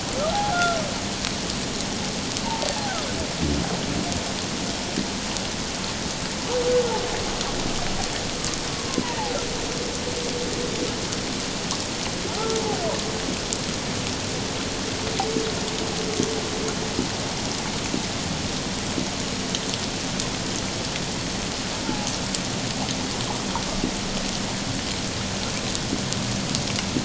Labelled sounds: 0.5	0.8	humpback whale, 1.3 to 1.5 kHz
21.8	22.1	humpback whale, 0.78 to 0.94 kHz

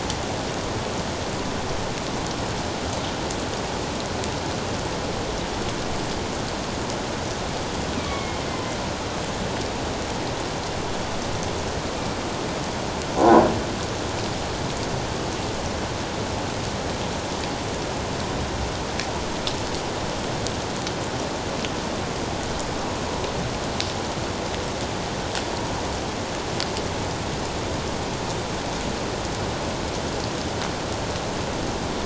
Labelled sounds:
8.0	8.4	killer whale, northern resident, A clan, AA subclan, A04 pod, 2.1 to 2.6 kHz

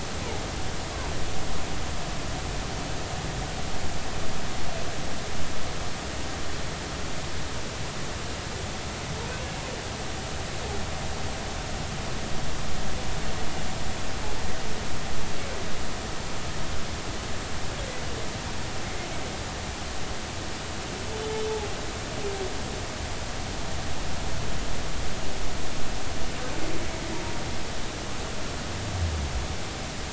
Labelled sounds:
21.1	21.3	humpback whale, 3.4 to 3.5 kHz

